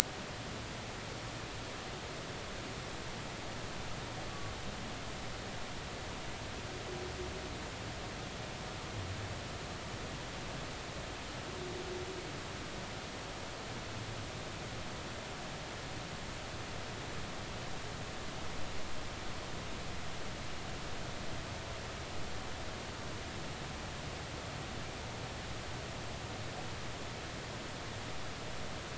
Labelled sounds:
4.3	4.5	humpback whale, 1.1 to 1.2 kHz

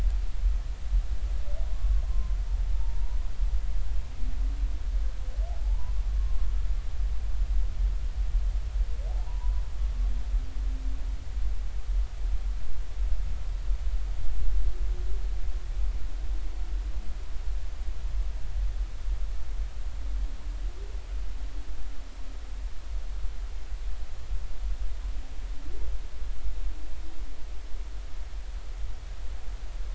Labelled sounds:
2.0	3.2	humpback whale, 0.83 to 1.1 kHz
5.6	5.9	humpback whale, 0.80 to 1.1 kHz
9.1	9.6	humpback whale, 0.80 to 1.1 kHz

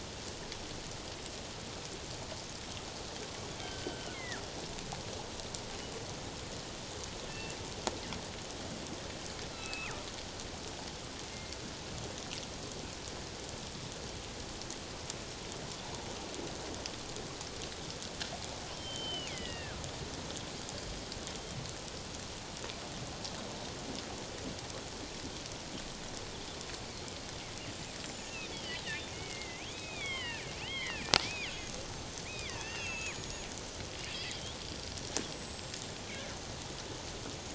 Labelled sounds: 3.6	4.4	killer whale, northern resident, G clan, 1.3 to 2.2 kHz
7.3	7.6	killer whale, northern resident, G clan, 2.6 to 2.8 kHz
9.5	10.0	killer whale, northern resident, G clan, 1.2 to 2.8 kHz
18.8	19.9	killer whale, northern resident, G clan, 1.2 to 5.4 kHz
28.0	33.5	killer whale, northern resident, G clan, 0.91 to 7.4 kHz
34.3	35.8	killer whale, northern resident, G clan, 3.1 to 7.9 kHz

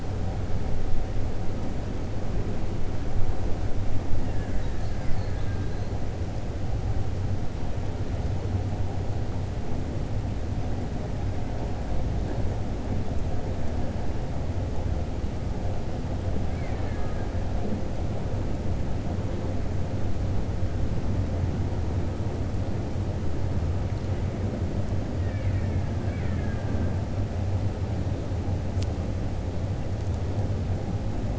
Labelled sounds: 4.2	4.7	killer whale, Bigg's (transient), 0.92 to 2.9 kHz
16.4	17.2	killer whale, Bigg's (transient), 0.76 to 4.0 kHz
25.9	26.9	killer whale, Bigg's (transient), 1.2 to 3.1 kHz

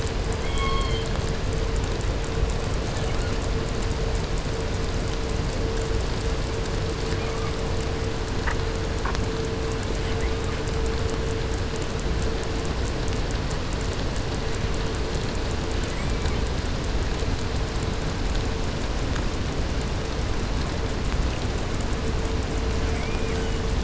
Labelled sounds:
0.2	1.3	killer whale, southern resident, 0.76 to 4.9 kHz
2.9	3.5	killer whale, 0.84 to 8.0 kHz
7.0	7.8	killer whale, 0.76 to 2.8 kHz
9.9	10.6	killer whale, 1.1 to 8.0 kHz
15.7	16.7	killer whale, southern resident, 0.80 to 8.0 kHz
22.7	23.8	killer whale, southern resident, 1.1 to 8.0 kHz

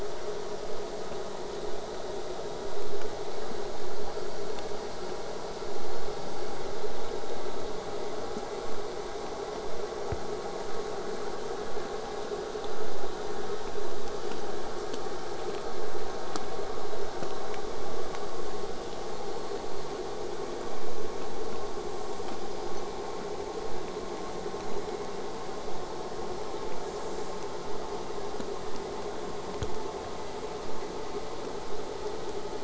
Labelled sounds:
27.6	32.6	vessel noise, 0 to 8.0 kHz

